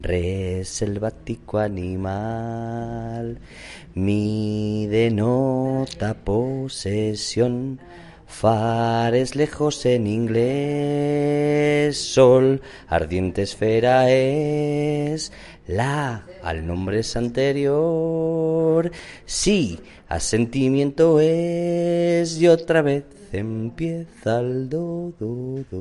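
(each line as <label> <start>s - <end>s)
A man is singing in a nearly spoken manner. 0.0s - 25.8s
A woman is speaking indistinctly in the background. 5.8s - 6.1s
A woman is speaking indistinctly in the background. 7.9s - 8.3s
A woman’s voice is heard in the background. 7.9s - 8.3s
A woman is speaking indistinctly in the background. 16.5s - 16.6s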